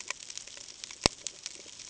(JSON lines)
{"label": "ambient", "recorder": "HydroMoth"}